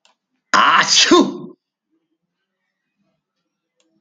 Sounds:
Sneeze